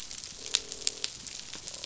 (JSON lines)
{"label": "biophony, croak", "recorder": "SoundTrap 500"}